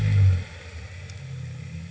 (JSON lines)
{"label": "anthrophony, boat engine", "recorder": "HydroMoth"}